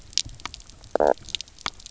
{"label": "biophony, knock croak", "recorder": "SoundTrap 300"}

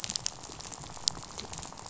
{"label": "biophony, rattle", "recorder": "SoundTrap 500"}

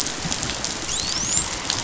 {"label": "biophony, dolphin", "recorder": "SoundTrap 500"}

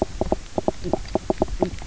{"label": "biophony, knock croak", "recorder": "SoundTrap 300"}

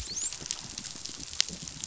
{"label": "biophony, dolphin", "recorder": "SoundTrap 500"}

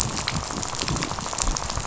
{"label": "biophony, rattle", "recorder": "SoundTrap 500"}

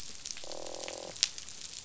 {"label": "biophony, croak", "recorder": "SoundTrap 500"}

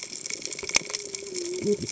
{"label": "biophony, cascading saw", "recorder": "HydroMoth"}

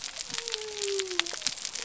{"label": "biophony", "recorder": "SoundTrap 300"}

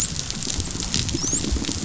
{"label": "biophony, dolphin", "recorder": "SoundTrap 500"}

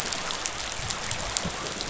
{"label": "biophony", "recorder": "SoundTrap 500"}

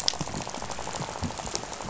{"label": "biophony, rattle", "recorder": "SoundTrap 500"}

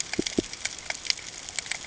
{"label": "ambient", "recorder": "HydroMoth"}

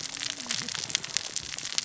{"label": "biophony, cascading saw", "recorder": "SoundTrap 600 or HydroMoth"}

